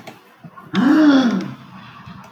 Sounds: Sigh